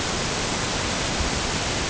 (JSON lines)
{"label": "ambient", "recorder": "HydroMoth"}